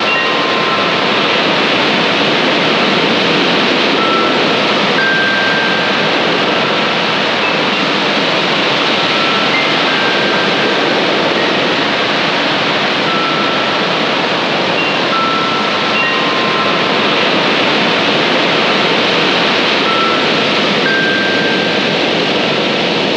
Is there beeping?
yes